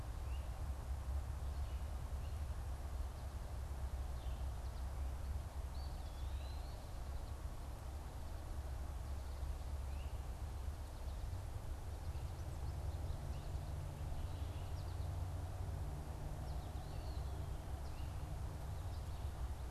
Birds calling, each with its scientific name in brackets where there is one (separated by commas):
Great Crested Flycatcher (Myiarchus crinitus), Eastern Wood-Pewee (Contopus virens)